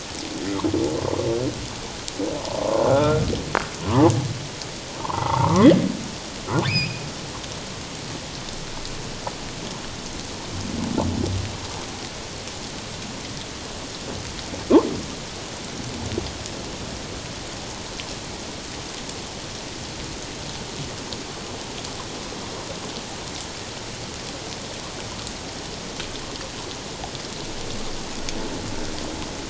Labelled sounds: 2.8	3.2	humpback whale, 1.2 to 1.5 kHz
3.8	4.1	humpback whale, 0.78 to 1.2 kHz
5.0	5.7	humpback whale, 0.81 to 1.4 kHz
6.7	7.1	humpback whale, 2.1 to 5.2 kHz

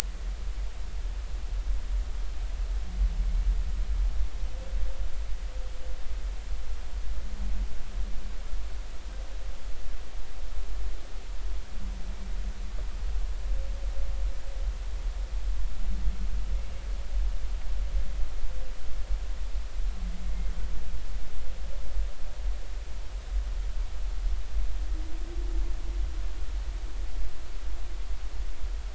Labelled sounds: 20.2	20.5	humpback whale, 2.1 to 2.2 kHz

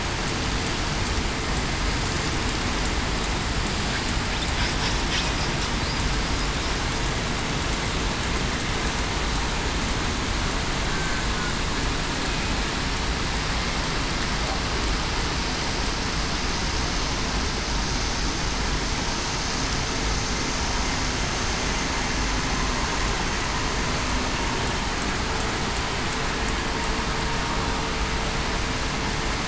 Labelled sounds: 10.9	11.3	killer whale, southern resident, 1.5 to 1.6 kHz

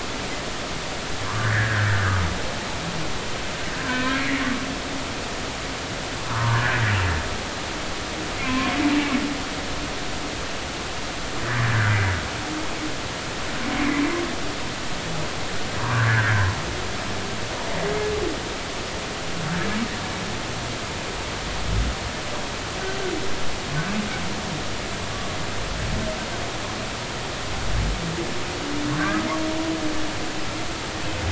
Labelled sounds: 1.4	1.9	humpback whale, 1.3 to 2.0 kHz
3.7	4.4	humpback whale, 1.5 to 2.4 kHz
6.3	6.8	humpback whale, 0.86 to 1.9 kHz
8.4	8.7	humpback whale, 0.96 to 1.1 kHz
11.6	11.9	humpback whale, 1.3 to 1.8 kHz
13.8	14.0	humpback whale, 2.0 to 2.4 kHz
15.8	16.5	humpback whale, 0.90 to 1.9 kHz
29.0	29.3	humpback whale, 1.1 to 1.3 kHz

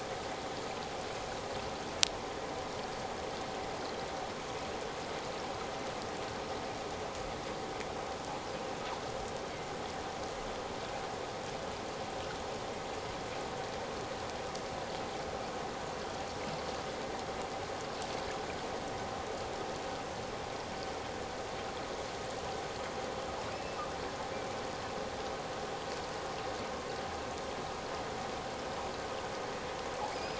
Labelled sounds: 23.5	23.8	killer whale, offshore, 2.4 to 2.7 kHz
30.1	30.3	killer whale, offshore, 4.8 to 5.2 kHz

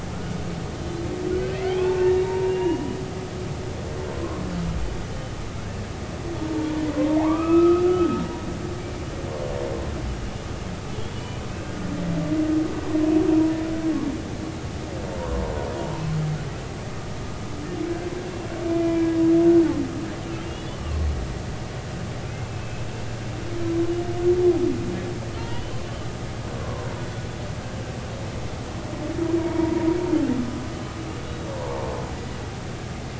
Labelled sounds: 1.3	3.0	humpback whale, 0.86 to 3.9 kHz
4.2	4.4	humpback whale, 0.99 to 1.1 kHz
6.5	8.2	humpback whale, 0.80 to 2.6 kHz
8.8	9.1	humpback whale, 2.2 to 2.4 kHz
11.2	11.4	humpback whale, 2.9 to 3.0 kHz
15.2	15.4	humpback whale, 0.90 to 1.1 kHz
19.7	20.8	humpback whale, 2.3 to 3.5 kHz
22.4	22.9	humpback whale, 2.5 to 2.7 kHz
25.4	25.8	humpback whale, 0.86 to 3.5 kHz
26.5	26.9	humpback whale, 0.93 to 1.2 kHz
29.4	29.9	humpback whale, 0.90 to 2.3 kHz
31.6	31.9	humpback whale, 0.83 to 1.1 kHz

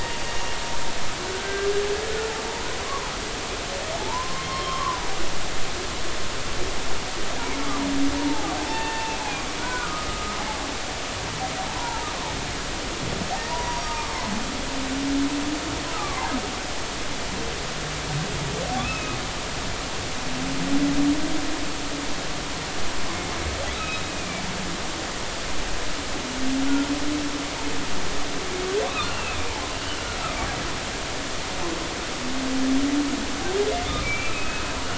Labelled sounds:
1.3	1.7	humpback whale, 1.4 to 1.6 kHz
3.9	5.1	humpback whale, 0.80 to 3.3 kHz
8.2	10.4	humpback whale, 0.80 to 3.6 kHz
11.8	12.1	humpback whale, 0.83 to 1.1 kHz
13.5	14.2	humpback whale, 0.90 to 5.7 kHz
15.9	16.3	humpback whale, 0.80 to 1.4 kHz
18.8	19.2	humpback whale, 2.4 to 2.7 kHz
23.8	24.4	humpback whale, 2.2 to 2.7 kHz
29.0	30.0	humpback whale, 2.3 to 3.1 kHz
34.0	34.7	humpback whale, 2.2 to 2.8 kHz

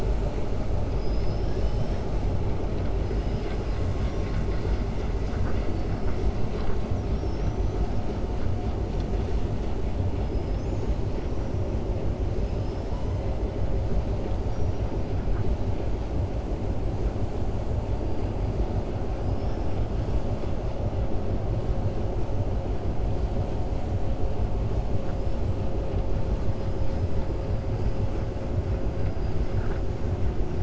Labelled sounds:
0.9	2.0	killer whale, 4.4 to 5.9 kHz
6.9	7.8	killer whale, 5.3 to 6.2 kHz

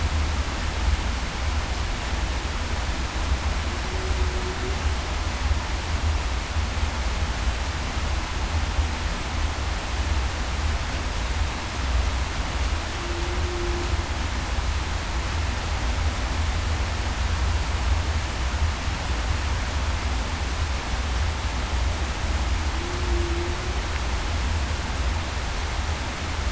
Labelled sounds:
12.9	13.8	humpback whale, 0.33 to 0.38 kHz
22.8	23.5	humpback whale, 0.30 to 0.38 kHz

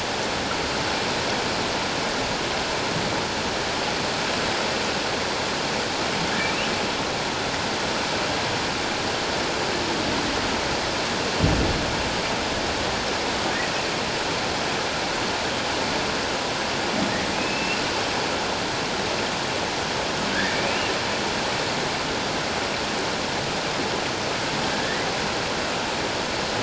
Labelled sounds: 17.4	17.8	humpback whale, 2.5 to 2.8 kHz
20.3	20.9	humpback whale, 1.5 to 2.9 kHz
24.7	25.1	humpback whale, 1.6 to 2.1 kHz

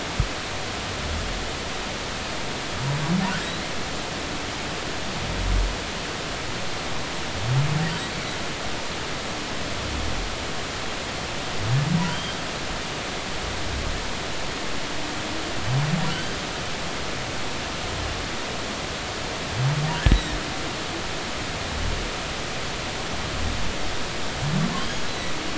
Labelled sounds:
12.1	12.4	humpback whale, 2.8 to 3.3 kHz
16.1	16.4	humpback whale, 2.9 to 3.2 kHz
20.1	20.4	humpback whale, 1.7 to 4.0 kHz
24.8	25.1	humpback whale, 3.0 to 6.7 kHz

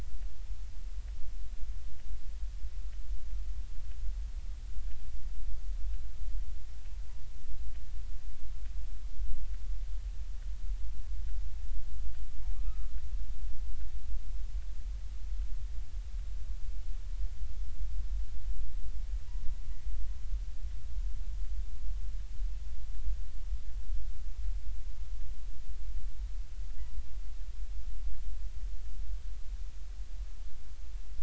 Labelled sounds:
12.6	12.9	killer whale, northern resident, G clan, 1.0 to 1.3 kHz

